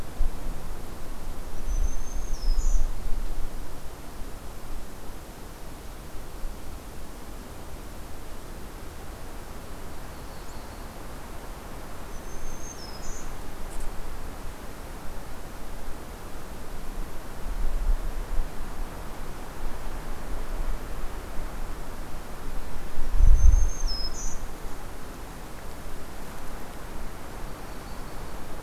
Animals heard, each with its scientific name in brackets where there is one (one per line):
Yellow-rumped Warbler (Setophaga coronata)
Black-throated Green Warbler (Setophaga virens)